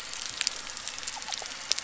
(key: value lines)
label: biophony
recorder: SoundTrap 300